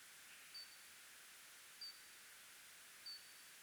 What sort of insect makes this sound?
orthopteran